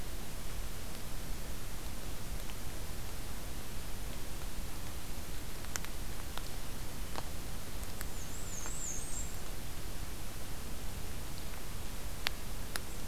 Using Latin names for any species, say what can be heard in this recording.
Mniotilta varia